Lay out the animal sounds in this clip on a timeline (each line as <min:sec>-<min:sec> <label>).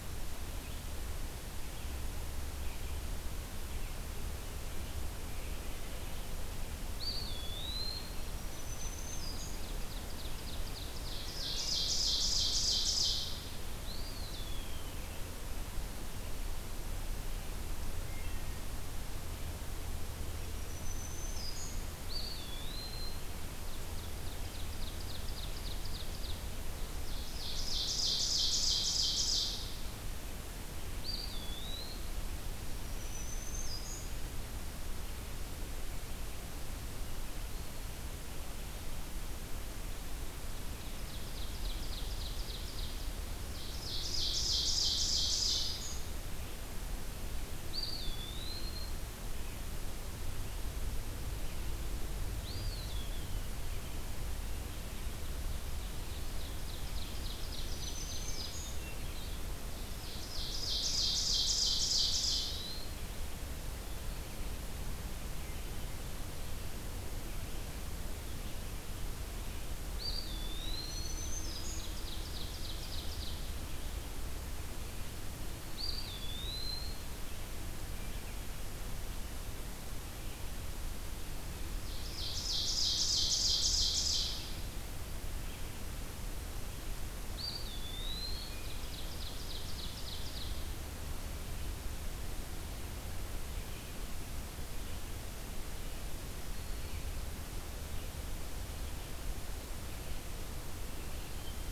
0:00.4-0:06.3 Red-eyed Vireo (Vireo olivaceus)
0:06.9-0:08.3 Eastern Wood-Pewee (Contopus virens)
0:08.2-0:09.9 Black-throated Green Warbler (Setophaga virens)
0:08.3-0:13.6 Ovenbird (Seiurus aurocapilla)
0:13.7-0:15.4 Eastern Wood-Pewee (Contopus virens)
0:18.0-0:18.6 Wood Thrush (Hylocichla mustelina)
0:20.4-0:22.0 Black-throated Green Warbler (Setophaga virens)
0:22.0-0:23.6 Eastern Wood-Pewee (Contopus virens)
0:23.2-0:29.9 Ovenbird (Seiurus aurocapilla)
0:30.9-0:32.1 Eastern Wood-Pewee (Contopus virens)
0:32.6-0:34.4 Black-throated Green Warbler (Setophaga virens)
0:40.5-0:46.1 Ovenbird (Seiurus aurocapilla)
0:44.8-0:46.1 Black-throated Green Warbler (Setophaga virens)
0:47.6-0:49.5 Eastern Wood-Pewee (Contopus virens)
0:52.3-0:54.3 Eastern Wood-Pewee (Contopus virens)
0:55.0-0:58.7 Ovenbird (Seiurus aurocapilla)
0:57.4-0:59.0 Black-throated Green Warbler (Setophaga virens)
0:58.2-0:59.4 Hermit Thrush (Catharus guttatus)
0:59.7-1:02.8 Ovenbird (Seiurus aurocapilla)
1:01.8-1:03.1 Eastern Wood-Pewee (Contopus virens)
1:05.2-1:41.7 Red-eyed Vireo (Vireo olivaceus)
1:09.8-1:11.6 Eastern Wood-Pewee (Contopus virens)
1:10.8-1:12.3 Black-throated Green Warbler (Setophaga virens)
1:11.1-1:13.6 Ovenbird (Seiurus aurocapilla)
1:15.6-1:17.3 Eastern Wood-Pewee (Contopus virens)
1:21.7-1:24.8 Ovenbird (Seiurus aurocapilla)
1:27.2-1:28.7 Eastern Wood-Pewee (Contopus virens)
1:27.9-1:30.9 Ovenbird (Seiurus aurocapilla)